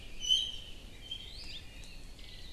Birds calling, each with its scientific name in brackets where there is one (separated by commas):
Hawaii Creeper (Loxops mana), Iiwi (Drepanis coccinea)